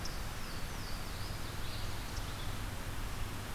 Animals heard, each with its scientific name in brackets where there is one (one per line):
Louisiana Waterthrush (Parkesia motacilla)
Red-eyed Vireo (Vireo olivaceus)
unknown mammal